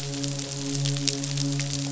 {"label": "biophony, midshipman", "recorder": "SoundTrap 500"}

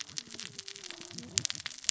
{"label": "biophony, cascading saw", "recorder": "SoundTrap 600 or HydroMoth"}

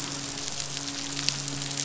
{"label": "biophony, midshipman", "recorder": "SoundTrap 500"}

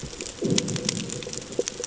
{"label": "anthrophony, bomb", "recorder": "HydroMoth"}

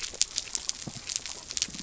{"label": "biophony", "recorder": "SoundTrap 300"}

